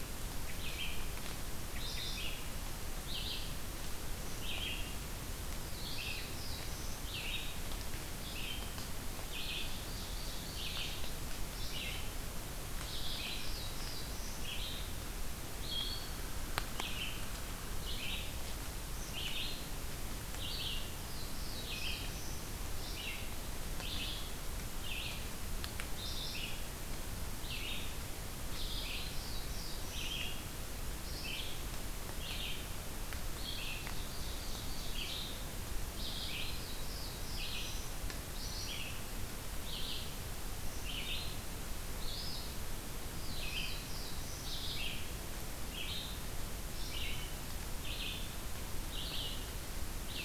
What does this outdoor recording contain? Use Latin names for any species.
Vireo olivaceus, Setophaga caerulescens, Seiurus aurocapilla